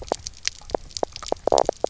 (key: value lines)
label: biophony, knock croak
recorder: SoundTrap 300